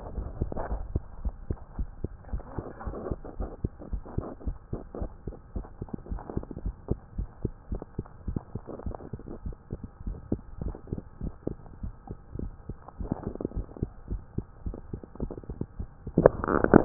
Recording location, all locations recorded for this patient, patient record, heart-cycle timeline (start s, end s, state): mitral valve (MV)
pulmonary valve (PV)+tricuspid valve (TV)+mitral valve (MV)
#Age: Child
#Sex: Female
#Height: 112.0 cm
#Weight: 21.2 kg
#Pregnancy status: False
#Murmur: Absent
#Murmur locations: nan
#Most audible location: nan
#Systolic murmur timing: nan
#Systolic murmur shape: nan
#Systolic murmur grading: nan
#Systolic murmur pitch: nan
#Systolic murmur quality: nan
#Diastolic murmur timing: nan
#Diastolic murmur shape: nan
#Diastolic murmur grading: nan
#Diastolic murmur pitch: nan
#Diastolic murmur quality: nan
#Outcome: Normal
#Campaign: 2015 screening campaign
0.00	0.52	unannotated
0.52	0.68	diastole
0.68	0.84	S1
0.84	0.94	systole
0.94	1.06	S2
1.06	1.22	diastole
1.22	1.34	S1
1.34	1.48	systole
1.48	1.58	S2
1.58	1.76	diastole
1.76	1.90	S1
1.90	2.00	systole
2.00	2.12	S2
2.12	2.30	diastole
2.30	2.42	S1
2.42	2.56	systole
2.56	2.66	S2
2.66	2.84	diastole
2.84	2.98	S1
2.98	3.08	systole
3.08	3.20	S2
3.20	3.38	diastole
3.38	3.50	S1
3.50	3.62	systole
3.62	3.72	S2
3.72	3.90	diastole
3.90	4.04	S1
4.04	4.16	systole
4.16	4.26	S2
4.26	4.44	diastole
4.44	4.56	S1
4.56	4.72	systole
4.72	4.82	S2
4.82	5.00	diastole
5.00	5.12	S1
5.12	5.24	systole
5.24	5.36	S2
5.36	5.54	diastole
5.54	5.66	S1
5.66	5.79	systole
5.79	5.90	S2
5.90	6.10	diastole
6.10	6.20	S1
6.20	6.34	systole
6.34	6.44	S2
6.44	6.64	diastole
6.64	6.76	S1
6.76	6.88	systole
6.88	6.98	S2
6.98	7.16	diastole
7.16	7.30	S1
7.30	7.42	systole
7.42	7.52	S2
7.52	7.70	diastole
7.70	7.82	S1
7.82	7.98	systole
7.98	8.06	S2
8.06	8.26	diastole
8.26	8.42	S1
8.42	8.54	systole
8.54	8.64	S2
8.64	8.84	diastole
8.84	8.96	S1
8.96	9.14	systole
9.14	9.26	S2
9.26	9.44	diastole
9.44	9.56	S1
9.56	9.72	systole
9.72	9.82	S2
9.82	10.04	diastole
10.04	10.18	S1
10.18	10.28	systole
10.28	10.42	S2
10.42	10.60	diastole
10.60	10.76	S1
10.76	10.92	systole
10.92	11.04	S2
11.04	11.22	diastole
11.22	11.36	S1
11.36	11.46	systole
11.46	11.60	S2
11.60	11.82	diastole
11.82	11.94	S1
11.94	12.08	systole
12.08	12.20	S2
12.20	12.38	diastole
12.38	12.54	S1
12.54	12.66	systole
12.66	12.80	S2
12.80	13.00	diastole
13.00	16.85	unannotated